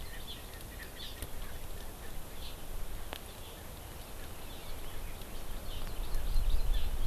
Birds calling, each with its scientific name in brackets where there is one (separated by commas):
Erckel's Francolin (Pternistis erckelii), Hawaii Amakihi (Chlorodrepanis virens)